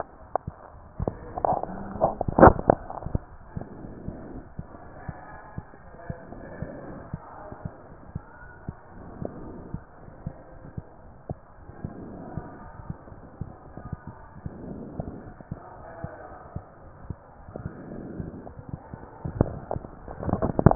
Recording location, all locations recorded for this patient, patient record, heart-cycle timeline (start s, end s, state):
aortic valve (AV)
aortic valve (AV)+pulmonary valve (PV)+tricuspid valve (TV)+mitral valve (MV)
#Age: Child
#Sex: Male
#Height: 108.0 cm
#Weight: 24.7 kg
#Pregnancy status: False
#Murmur: Absent
#Murmur locations: nan
#Most audible location: nan
#Systolic murmur timing: nan
#Systolic murmur shape: nan
#Systolic murmur grading: nan
#Systolic murmur pitch: nan
#Systolic murmur quality: nan
#Diastolic murmur timing: nan
#Diastolic murmur shape: nan
#Diastolic murmur grading: nan
#Diastolic murmur pitch: nan
#Diastolic murmur quality: nan
#Outcome: Normal
#Campaign: 2015 screening campaign
0.00	5.26	unannotated
5.26	5.38	S1
5.38	5.54	systole
5.54	5.64	S2
5.64	5.84	diastole
5.84	5.98	S1
5.98	6.08	systole
6.08	6.18	S2
6.18	6.37	diastole
6.37	6.50	S1
6.50	6.60	systole
6.60	6.70	S2
6.70	6.88	diastole
6.88	7.04	S1
7.04	7.12	systole
7.12	7.22	S2
7.22	7.41	diastole
7.41	7.52	S1
7.52	7.64	systole
7.64	7.72	S2
7.72	7.90	diastole
7.90	8.04	S1
8.04	8.14	systole
8.14	8.24	S2
8.24	8.41	diastole
8.41	8.52	S1
8.52	8.64	systole
8.64	8.76	S2
8.76	8.96	diastole
8.96	9.10	S1
9.10	9.20	systole
9.20	9.32	S2
9.32	9.52	diastole
9.52	9.64	S1
9.64	9.72	systole
9.72	9.82	S2
9.82	10.04	diastole
10.04	10.14	S1
10.14	10.22	systole
10.22	10.34	S2
10.34	10.54	diastole
10.54	10.68	S1
10.68	10.76	systole
10.76	10.84	S2
10.84	11.03	diastole
11.03	11.14	S1
11.14	11.26	systole
11.26	11.40	S2
11.40	11.64	diastole
11.64	11.74	S1
11.74	11.80	systole
11.80	11.92	S2
11.92	20.75	unannotated